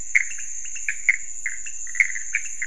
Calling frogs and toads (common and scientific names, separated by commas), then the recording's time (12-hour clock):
pointedbelly frog (Leptodactylus podicipinus), Pithecopus azureus
2:30am